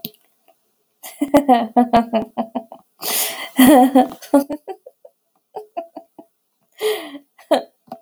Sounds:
Laughter